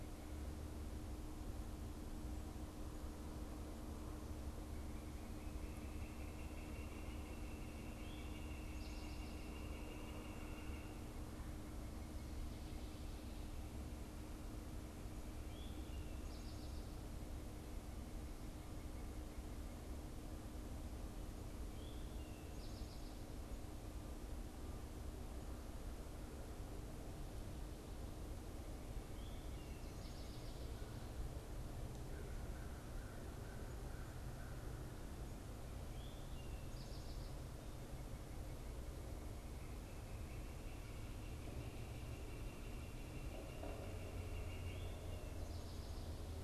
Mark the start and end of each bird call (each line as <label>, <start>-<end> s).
Northern Flicker (Colaptes auratus), 5.2-11.1 s
Eastern Towhee (Pipilo erythrophthalmus), 15.1-16.8 s
Eastern Towhee (Pipilo erythrophthalmus), 21.6-23.3 s
Eastern Towhee (Pipilo erythrophthalmus), 28.7-30.5 s
American Crow (Corvus brachyrhynchos), 31.6-34.7 s
Eastern Towhee (Pipilo erythrophthalmus), 36.2-37.5 s
Northern Flicker (Colaptes auratus), 39.6-45.3 s